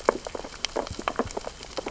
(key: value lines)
label: biophony, sea urchins (Echinidae)
recorder: SoundTrap 600 or HydroMoth